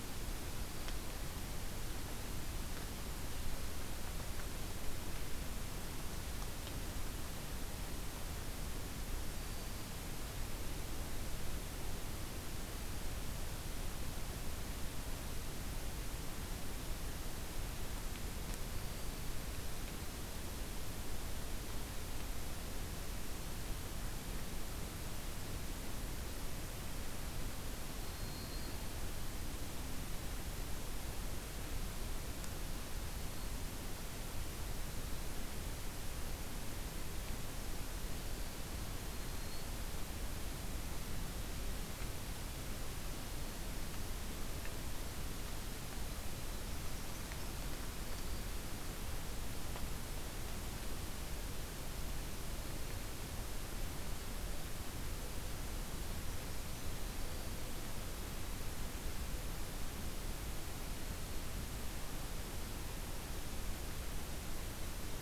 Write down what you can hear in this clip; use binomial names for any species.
Setophaga virens, Certhia americana